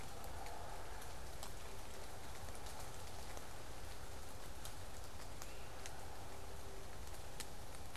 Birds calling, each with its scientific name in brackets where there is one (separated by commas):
Great Crested Flycatcher (Myiarchus crinitus)